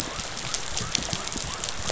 {"label": "biophony", "recorder": "SoundTrap 500"}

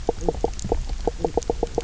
{"label": "biophony, knock croak", "recorder": "SoundTrap 300"}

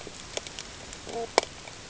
{"label": "ambient", "recorder": "HydroMoth"}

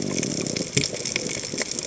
{"label": "biophony", "recorder": "HydroMoth"}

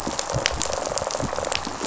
{"label": "biophony, rattle response", "recorder": "SoundTrap 500"}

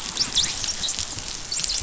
{"label": "biophony, dolphin", "recorder": "SoundTrap 500"}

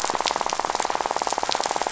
{"label": "biophony, rattle", "recorder": "SoundTrap 500"}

